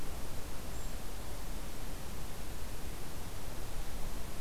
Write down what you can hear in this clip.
Golden-crowned Kinglet